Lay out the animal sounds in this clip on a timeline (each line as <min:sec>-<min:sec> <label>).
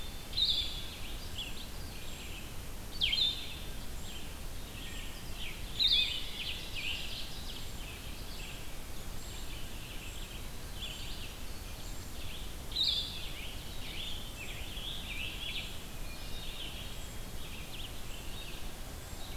0:00.0-0:04.7 unidentified call
0:00.0-0:06.2 Blue-headed Vireo (Vireo solitarius)
0:00.0-0:19.4 Red-eyed Vireo (Vireo olivaceus)
0:04.7-0:05.4 Blue Jay (Cyanocitta cristata)
0:05.3-0:07.8 Ovenbird (Seiurus aurocapilla)
0:05.9-0:19.4 unidentified call
0:06.1-0:06.9 Blue Jay (Cyanocitta cristata)
0:12.8-0:15.6 Scarlet Tanager (Piranga olivacea)
0:16.0-0:17.0 Hermit Thrush (Catharus guttatus)
0:18.2-0:19.4 Eastern Wood-Pewee (Contopus virens)